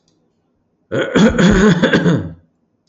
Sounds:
Throat clearing